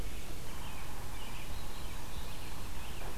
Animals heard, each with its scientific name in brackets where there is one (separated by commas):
American Robin (Turdus migratorius), Yellow-bellied Sapsucker (Sphyrapicus varius), Black-throated Blue Warbler (Setophaga caerulescens)